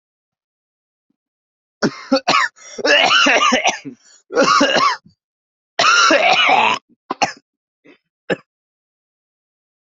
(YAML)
expert_labels:
- quality: good
  cough_type: dry
  dyspnea: false
  wheezing: false
  stridor: false
  choking: true
  congestion: false
  nothing: false
  diagnosis: lower respiratory tract infection
  severity: severe
age: 24
gender: female
respiratory_condition: true
fever_muscle_pain: false
status: COVID-19